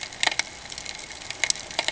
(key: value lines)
label: ambient
recorder: HydroMoth